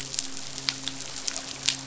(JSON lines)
{"label": "biophony, midshipman", "recorder": "SoundTrap 500"}